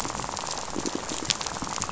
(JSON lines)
{"label": "biophony, rattle", "recorder": "SoundTrap 500"}